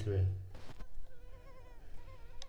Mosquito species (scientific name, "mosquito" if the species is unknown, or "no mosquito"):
Culex pipiens complex